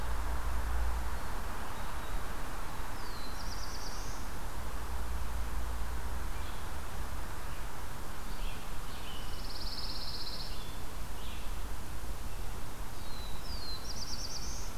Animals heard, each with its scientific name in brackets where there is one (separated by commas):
Black-throated Blue Warbler (Setophaga caerulescens), Pine Warbler (Setophaga pinus), Red-eyed Vireo (Vireo olivaceus)